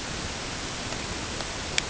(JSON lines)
{"label": "ambient", "recorder": "HydroMoth"}